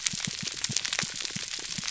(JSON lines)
{"label": "biophony, pulse", "recorder": "SoundTrap 300"}